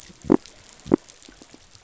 {"label": "biophony", "recorder": "SoundTrap 500"}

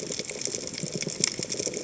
{"label": "biophony, chatter", "recorder": "HydroMoth"}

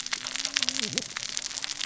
{"label": "biophony, cascading saw", "recorder": "SoundTrap 600 or HydroMoth"}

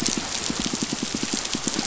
{"label": "biophony, pulse", "recorder": "SoundTrap 500"}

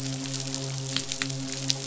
{"label": "biophony, midshipman", "recorder": "SoundTrap 500"}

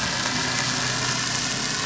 {"label": "anthrophony, boat engine", "recorder": "SoundTrap 500"}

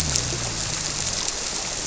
{"label": "biophony", "recorder": "SoundTrap 300"}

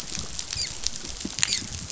{"label": "biophony, dolphin", "recorder": "SoundTrap 500"}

